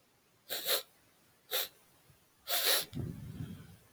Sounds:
Sniff